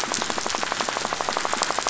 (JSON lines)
{"label": "biophony, rattle", "recorder": "SoundTrap 500"}